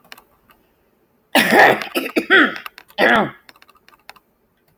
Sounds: Throat clearing